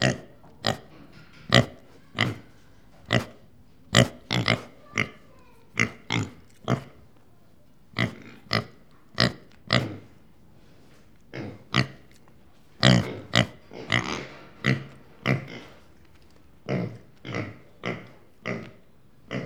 What animal is making this noise?
pig